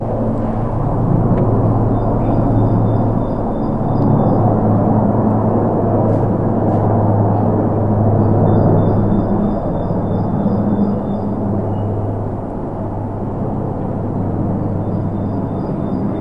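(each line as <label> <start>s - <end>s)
A deep, muffled aircraft sound in the distance. 0.0s - 16.2s
Birds chirping in the distance. 0.0s - 16.2s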